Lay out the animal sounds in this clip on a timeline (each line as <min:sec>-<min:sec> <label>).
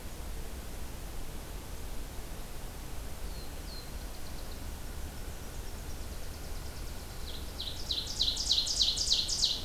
0:03.1-0:04.7 Black-throated Blue Warbler (Setophaga caerulescens)
0:05.0-0:07.4 Nashville Warbler (Leiothlypis ruficapilla)
0:07.2-0:09.6 Ovenbird (Seiurus aurocapilla)